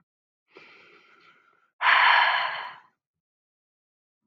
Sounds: Sigh